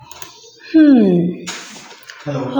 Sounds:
Sigh